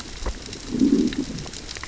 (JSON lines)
{"label": "biophony, growl", "recorder": "SoundTrap 600 or HydroMoth"}